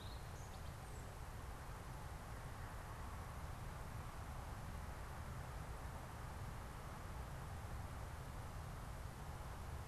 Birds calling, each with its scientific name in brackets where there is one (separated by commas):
Ovenbird (Seiurus aurocapilla)